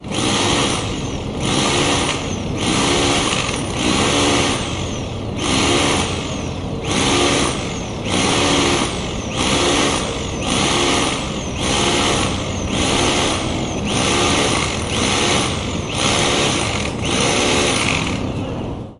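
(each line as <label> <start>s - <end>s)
Short bursts of a chainsaw. 0.0s - 19.0s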